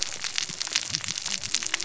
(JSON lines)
{"label": "biophony, cascading saw", "recorder": "SoundTrap 600 or HydroMoth"}